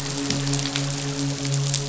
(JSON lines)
{"label": "biophony, midshipman", "recorder": "SoundTrap 500"}